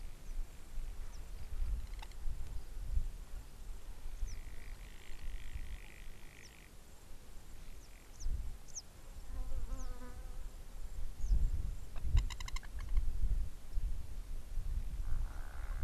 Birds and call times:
Garganey (Spatula querquedula): 0:05.7
Blacksmith Lapwing (Vanellus armatus): 0:12.4

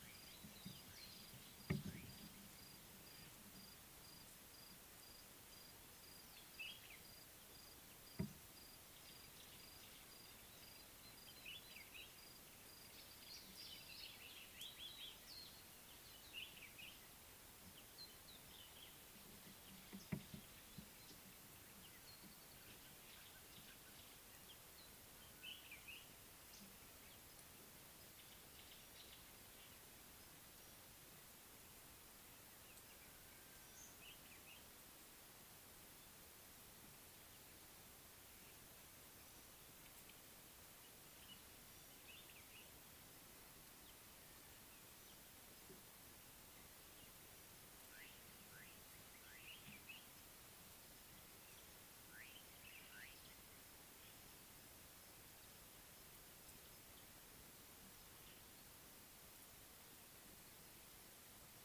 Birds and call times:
Common Bulbul (Pycnonotus barbatus): 0:06.7, 0:25.6, 0:34.1
Red-faced Crombec (Sylvietta whytii): 0:14.9
Scarlet-chested Sunbird (Chalcomitra senegalensis): 0:18.1
Slate-colored Boubou (Laniarius funebris): 0:48.7

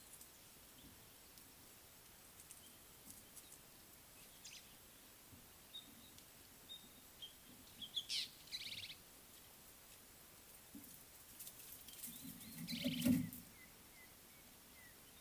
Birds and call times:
White-browed Sparrow-Weaver (Plocepasser mahali): 0:04.5
Fork-tailed Drongo (Dicrurus adsimilis): 0:08.2, 0:13.0

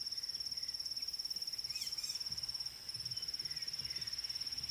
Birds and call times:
White-rumped Shrike (Eurocephalus ruppelli): 0:01.8

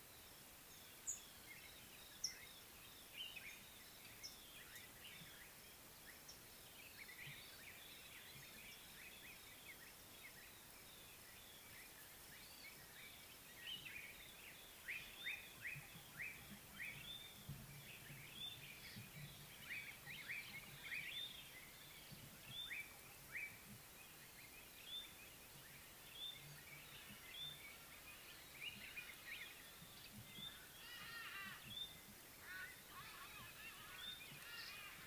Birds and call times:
Variable Sunbird (Cinnyris venustus): 0:01.1
Slate-colored Boubou (Laniarius funebris): 0:15.6
White-browed Robin-Chat (Cossypha heuglini): 0:17.2, 0:26.3
Hadada Ibis (Bostrychia hagedash): 0:31.2

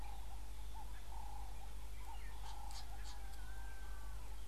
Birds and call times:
Northern Puffback (Dryoscopus gambensis): 0:02.8

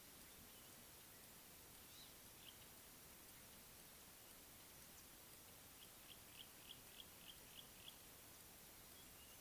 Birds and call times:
Yellow-breasted Apalis (Apalis flavida): 0:07.0

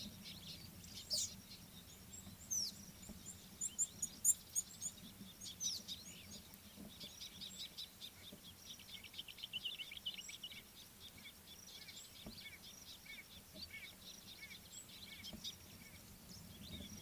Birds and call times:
Red-cheeked Cordonbleu (Uraeginthus bengalus): 0:04.2
Scarlet-chested Sunbird (Chalcomitra senegalensis): 0:07.8
Common Bulbul (Pycnonotus barbatus): 0:09.6
White-bellied Go-away-bird (Corythaixoides leucogaster): 0:13.1

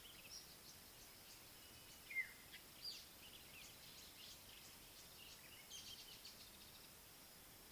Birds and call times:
African Black-headed Oriole (Oriolus larvatus): 0:02.1

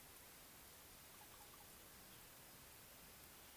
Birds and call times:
Slate-colored Boubou (Laniarius funebris): 0:01.4

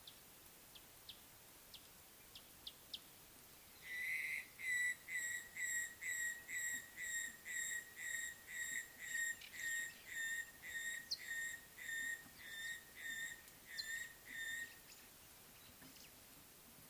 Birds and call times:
Gray-headed Bushshrike (Malaconotus blanchoti): 0:04.2, 0:05.2, 0:05.8, 0:07.0, 0:08.6, 0:09.7, 0:11.3, 0:12.5, 0:14.4

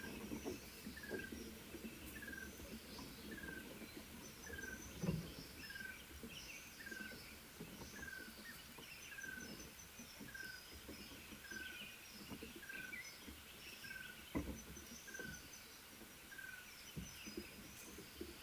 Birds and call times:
Red-fronted Tinkerbird (Pogoniulus pusillus): 0:03.5, 0:15.2
Mountain Wagtail (Motacilla clara): 0:11.0

